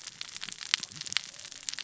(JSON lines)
{"label": "biophony, cascading saw", "recorder": "SoundTrap 600 or HydroMoth"}